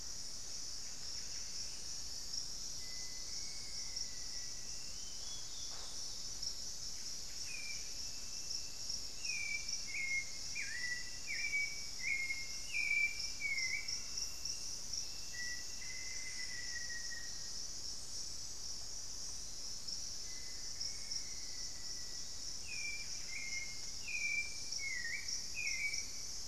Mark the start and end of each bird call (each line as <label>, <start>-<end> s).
Buff-breasted Wren (Cantorchilus leucotis), 0.4-1.7 s
Black-faced Antthrush (Formicarius analis), 2.6-5.0 s
Olivaceous Woodcreeper (Sittasomus griseicapillus), 4.0-6.9 s
Buff-breasted Wren (Cantorchilus leucotis), 6.8-8.1 s
Hauxwell's Thrush (Turdus hauxwelli), 7.3-14.3 s
Black-faced Antthrush (Formicarius analis), 15.1-17.5 s
unidentified bird, 20.1-21.2 s
Black-faced Antthrush (Formicarius analis), 20.2-22.3 s
Hauxwell's Thrush (Turdus hauxwelli), 22.3-26.4 s
Buff-breasted Wren (Cantorchilus leucotis), 22.5-23.8 s